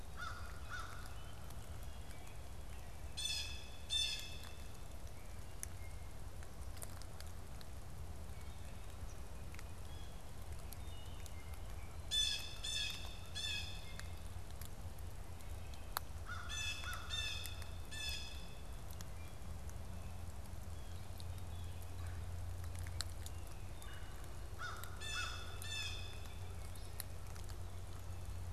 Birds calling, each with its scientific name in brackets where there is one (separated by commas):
American Crow (Corvus brachyrhynchos), Red-bellied Woodpecker (Melanerpes carolinus), Wood Thrush (Hylocichla mustelina), Blue Jay (Cyanocitta cristata)